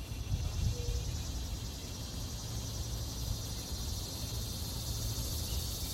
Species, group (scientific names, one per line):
Neotibicen tibicen
Cicadidae